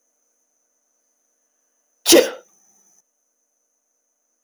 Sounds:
Sneeze